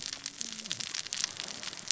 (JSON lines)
{"label": "biophony, cascading saw", "recorder": "SoundTrap 600 or HydroMoth"}